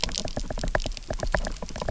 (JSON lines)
{"label": "biophony, knock", "recorder": "SoundTrap 300"}